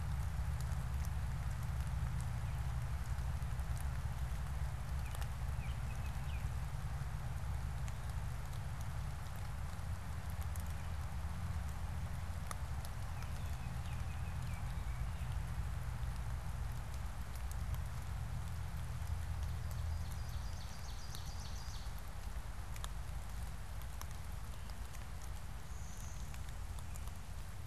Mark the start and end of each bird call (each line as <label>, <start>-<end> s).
Baltimore Oriole (Icterus galbula), 4.8-6.8 s
Baltimore Oriole (Icterus galbula), 12.8-15.5 s
Ovenbird (Seiurus aurocapilla), 19.1-22.1 s
Blue-winged Warbler (Vermivora cyanoptera), 25.6-26.8 s